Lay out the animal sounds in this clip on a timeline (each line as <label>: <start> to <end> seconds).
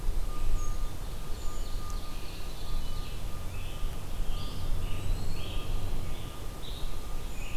Brown Creeper (Certhia americana): 0.4 to 2.1 seconds
Ovenbird (Seiurus aurocapilla): 0.6 to 3.2 seconds
Scarlet Tanager (Piranga olivacea): 3.2 to 7.6 seconds
Eastern Wood-Pewee (Contopus virens): 4.3 to 5.7 seconds
Brown Creeper (Certhia americana): 7.0 to 7.6 seconds